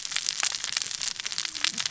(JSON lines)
{"label": "biophony, cascading saw", "recorder": "SoundTrap 600 or HydroMoth"}